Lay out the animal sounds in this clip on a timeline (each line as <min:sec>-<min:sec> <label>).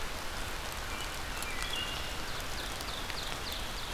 0:00.1-0:02.8 American Crow (Corvus brachyrhynchos)
0:01.3-0:02.0 Wood Thrush (Hylocichla mustelina)
0:01.8-0:03.9 Ovenbird (Seiurus aurocapilla)